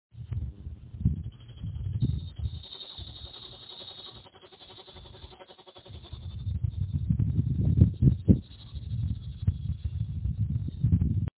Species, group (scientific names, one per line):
Lyristes plebejus
Cicadidae